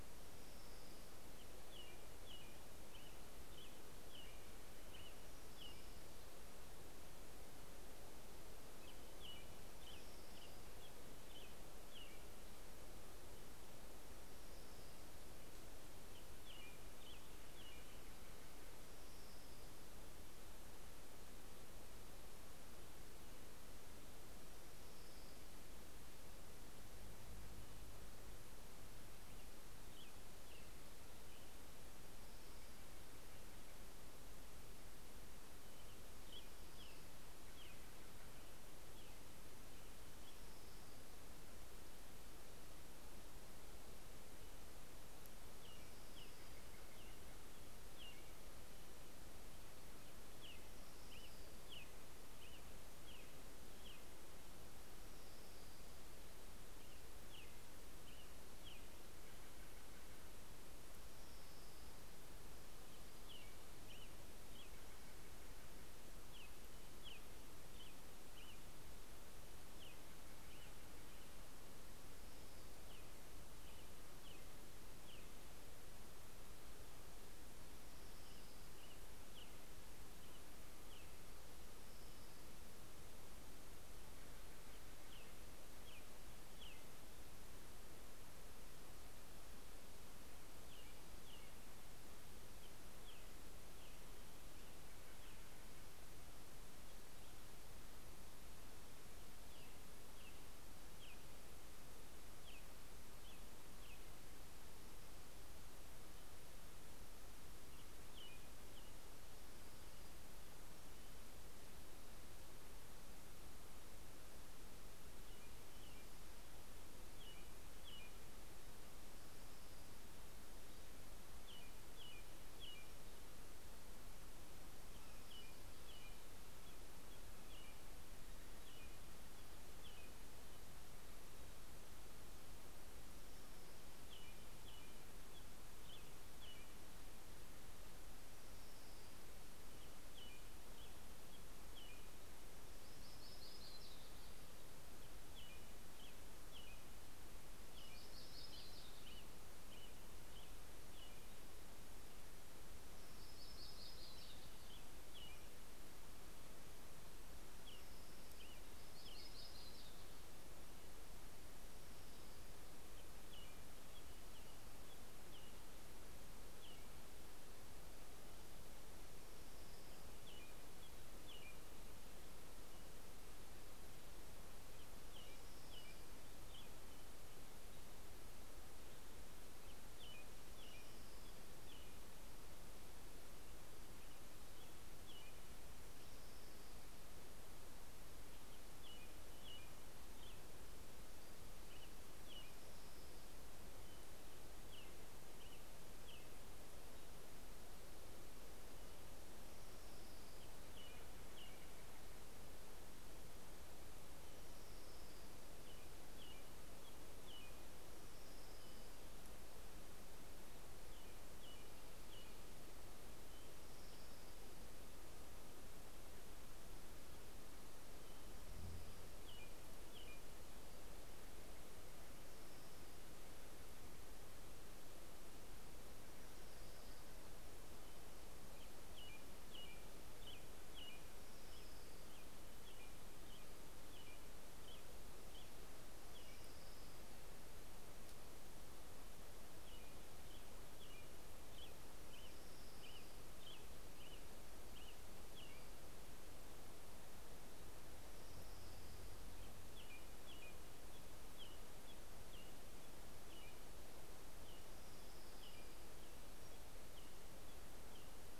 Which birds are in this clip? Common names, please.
Orange-crowned Warbler, American Robin, Steller's Jay, Yellow-rumped Warbler, Pacific-slope Flycatcher